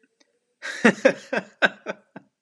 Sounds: Laughter